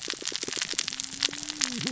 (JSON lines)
{"label": "biophony, cascading saw", "recorder": "SoundTrap 600 or HydroMoth"}